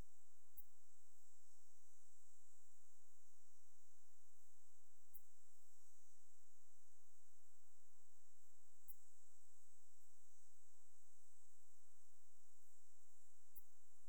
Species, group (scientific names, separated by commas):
Steropleurus andalusius, Orthoptera